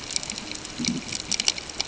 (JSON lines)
{"label": "ambient", "recorder": "HydroMoth"}